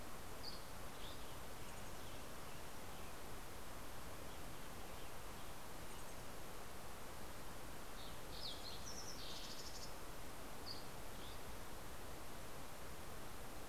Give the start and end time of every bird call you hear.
[0.20, 1.90] Dusky Flycatcher (Empidonax oberholseri)
[0.50, 6.40] Western Tanager (Piranga ludoviciana)
[7.30, 10.10] Fox Sparrow (Passerella iliaca)
[10.30, 11.80] Dusky Flycatcher (Empidonax oberholseri)

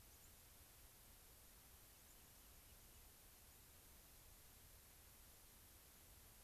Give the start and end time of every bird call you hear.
[0.00, 0.50] White-crowned Sparrow (Zonotrichia leucophrys)
[1.70, 3.10] Rock Wren (Salpinctes obsoletus)
[1.80, 4.40] White-crowned Sparrow (Zonotrichia leucophrys)

